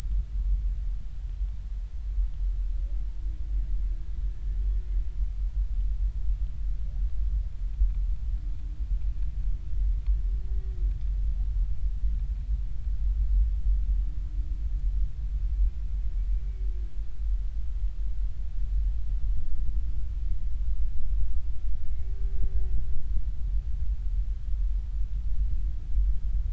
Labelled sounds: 4.3	4.6	humpback whale, 1.6 to 1.8 kHz
21.9	22.2	humpback whale, 2.1 to 2.3 kHz

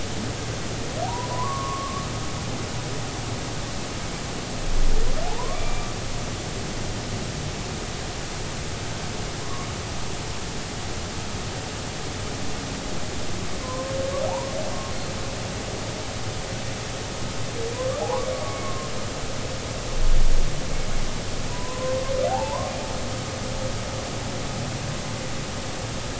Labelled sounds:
1.0	2.0	humpback whale, 0.80 to 1.2 kHz
5.3	5.9	humpback whale, 0.80 to 2.4 kHz
9.4	9.7	humpback whale, 0.96 to 1.2 kHz
13.6	14.5	humpback whale, 0.80 to 1.1 kHz
18.0	18.3	humpback whale, 0.80 to 1.2 kHz
18.6	18.9	humpback whale, 1.0 to 1.1 kHz
21.5	22.7	humpback whale, 0.80 to 1.1 kHz

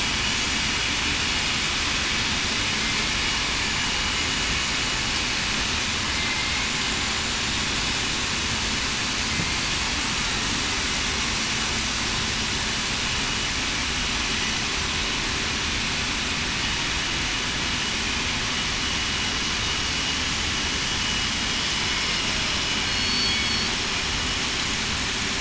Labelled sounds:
6.1	6.7	killer whale, southern resident, 2.0 to 2.2 kHz
22.8	23.7	killer whale, southern resident, 4.3 to 4.6 kHz

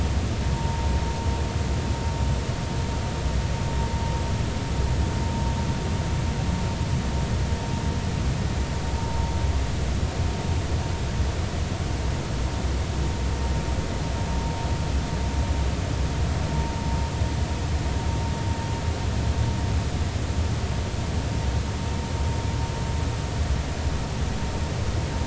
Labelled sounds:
0.6	0.8	vessel noise, 0.86 to 0.99 kHz

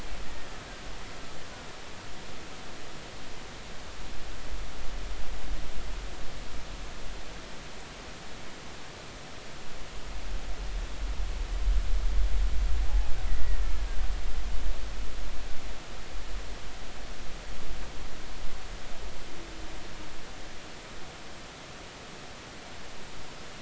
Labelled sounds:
13.2	13.6	killer whale, Bigg's (transient), 1.8 to 2.0 kHz

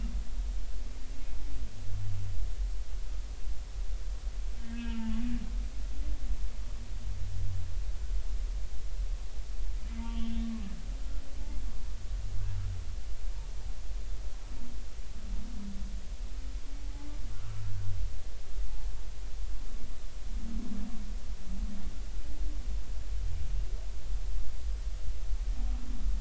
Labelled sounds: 4.6	5.1	humpback whale, 0.83 to 3.3 kHz
10.0	10.4	humpback whale, 1.1 to 3.5 kHz
16.8	17.6	humpback whale, 0.80 to 1.5 kHz

